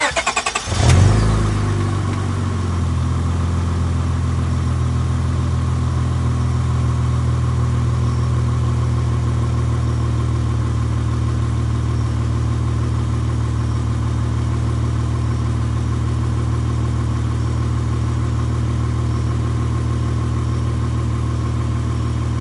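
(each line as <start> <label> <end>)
0.0 An engine starts. 1.5
1.4 An engine is running. 22.4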